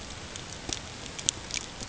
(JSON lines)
{"label": "ambient", "recorder": "HydroMoth"}